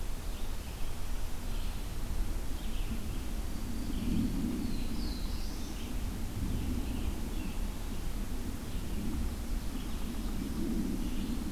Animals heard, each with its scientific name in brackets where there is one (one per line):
Black-throated Blue Warbler (Setophaga caerulescens)
Red-eyed Vireo (Vireo olivaceus)